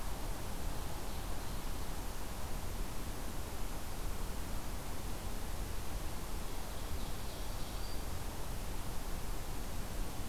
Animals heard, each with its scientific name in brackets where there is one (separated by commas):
Ovenbird (Seiurus aurocapilla), Black-throated Green Warbler (Setophaga virens)